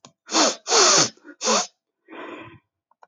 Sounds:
Sniff